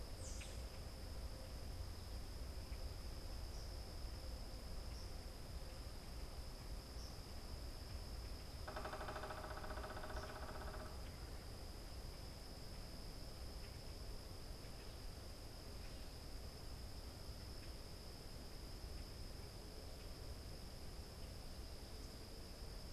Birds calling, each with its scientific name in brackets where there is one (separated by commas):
Eastern Kingbird (Tyrannus tyrannus), Common Grackle (Quiscalus quiscula), unidentified bird, American Robin (Turdus migratorius)